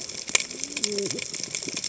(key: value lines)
label: biophony, cascading saw
recorder: HydroMoth